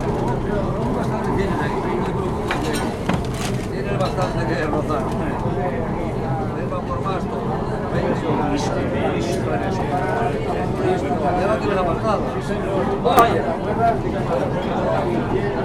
Is the person alone?
no